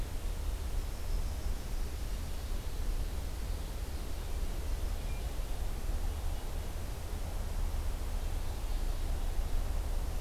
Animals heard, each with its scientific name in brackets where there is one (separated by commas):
Hermit Thrush (Catharus guttatus), Yellow-rumped Warbler (Setophaga coronata)